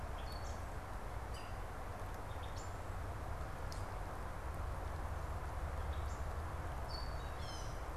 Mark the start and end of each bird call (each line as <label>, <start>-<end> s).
Gray Catbird (Dumetella carolinensis), 0.0-8.0 s